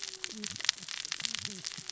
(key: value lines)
label: biophony, cascading saw
recorder: SoundTrap 600 or HydroMoth